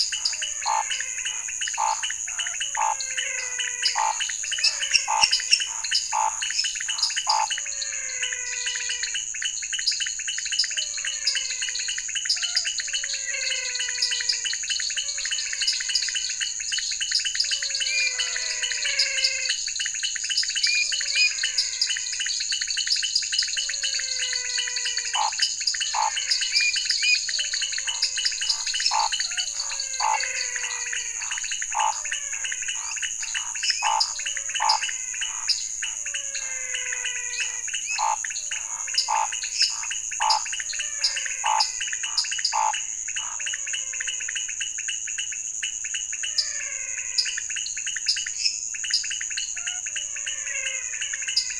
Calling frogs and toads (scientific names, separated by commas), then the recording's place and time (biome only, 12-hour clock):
Scinax fuscovarius, Dendropsophus nanus, Leptodactylus podicipinus, Physalaemus albonotatus, Dendropsophus minutus
Cerrado, 8:00pm